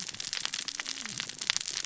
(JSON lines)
{"label": "biophony, cascading saw", "recorder": "SoundTrap 600 or HydroMoth"}